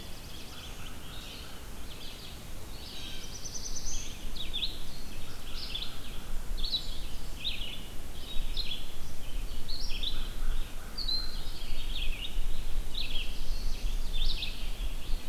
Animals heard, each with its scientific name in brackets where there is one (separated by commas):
Blue Jay (Cyanocitta cristata), Red-eyed Vireo (Vireo olivaceus), American Crow (Corvus brachyrhynchos), Black-throated Blue Warbler (Setophaga caerulescens)